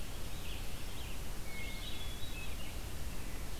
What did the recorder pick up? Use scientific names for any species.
Vireo olivaceus, Catharus guttatus